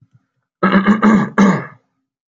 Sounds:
Cough